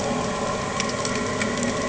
{"label": "anthrophony, boat engine", "recorder": "HydroMoth"}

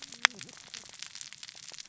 {"label": "biophony, cascading saw", "recorder": "SoundTrap 600 or HydroMoth"}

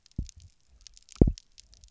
{"label": "biophony, double pulse", "recorder": "SoundTrap 300"}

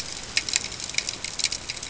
{"label": "ambient", "recorder": "HydroMoth"}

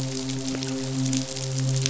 {"label": "biophony, midshipman", "recorder": "SoundTrap 500"}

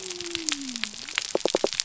{"label": "biophony", "recorder": "SoundTrap 300"}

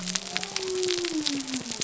{"label": "biophony", "recorder": "SoundTrap 300"}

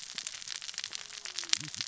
{"label": "biophony, cascading saw", "recorder": "SoundTrap 600 or HydroMoth"}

